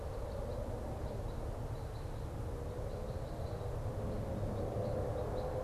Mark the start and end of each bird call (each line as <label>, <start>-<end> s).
Red Crossbill (Loxia curvirostra), 0.0-5.6 s